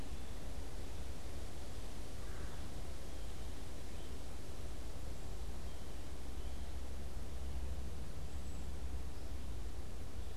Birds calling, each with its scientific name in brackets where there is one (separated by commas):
Red-eyed Vireo (Vireo olivaceus), Cedar Waxwing (Bombycilla cedrorum)